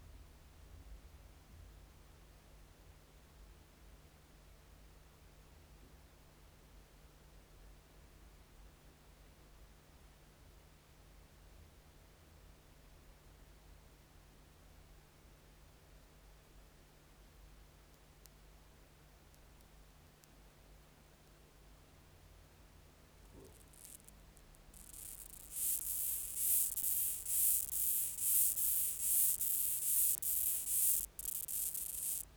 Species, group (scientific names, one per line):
Chorthippus acroleucus
Orthoptera